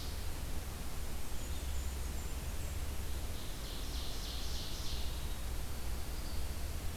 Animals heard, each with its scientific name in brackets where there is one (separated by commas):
Blackburnian Warbler (Setophaga fusca), Red-eyed Vireo (Vireo olivaceus), Ovenbird (Seiurus aurocapilla)